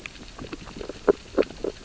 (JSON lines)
{"label": "biophony, sea urchins (Echinidae)", "recorder": "SoundTrap 600 or HydroMoth"}